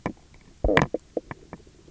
{"label": "biophony, knock croak", "recorder": "SoundTrap 300"}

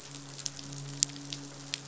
{"label": "biophony, midshipman", "recorder": "SoundTrap 500"}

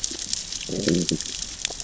{"label": "biophony, growl", "recorder": "SoundTrap 600 or HydroMoth"}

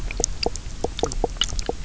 {"label": "biophony, knock croak", "recorder": "SoundTrap 300"}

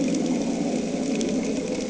{"label": "anthrophony, boat engine", "recorder": "HydroMoth"}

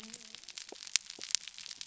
{"label": "biophony", "recorder": "SoundTrap 300"}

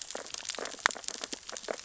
{"label": "biophony, sea urchins (Echinidae)", "recorder": "SoundTrap 600 or HydroMoth"}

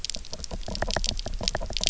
{"label": "biophony, knock", "recorder": "SoundTrap 300"}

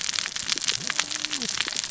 {"label": "biophony, cascading saw", "recorder": "SoundTrap 600 or HydroMoth"}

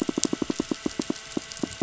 {"label": "biophony, pulse", "recorder": "SoundTrap 500"}
{"label": "anthrophony, boat engine", "recorder": "SoundTrap 500"}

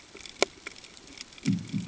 {"label": "anthrophony, bomb", "recorder": "HydroMoth"}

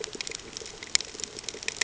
{"label": "ambient", "recorder": "HydroMoth"}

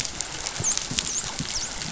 {"label": "biophony, dolphin", "recorder": "SoundTrap 500"}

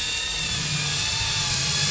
{"label": "anthrophony, boat engine", "recorder": "SoundTrap 500"}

